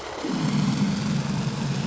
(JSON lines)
{"label": "anthrophony, boat engine", "recorder": "SoundTrap 500"}